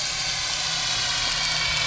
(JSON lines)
{"label": "anthrophony, boat engine", "recorder": "SoundTrap 300"}